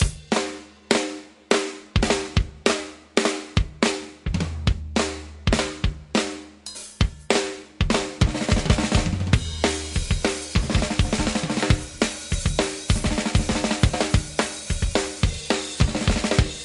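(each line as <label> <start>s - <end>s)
Music played on drums with increasing variation. 0.0s - 16.6s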